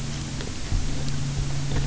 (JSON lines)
{"label": "anthrophony, boat engine", "recorder": "SoundTrap 300"}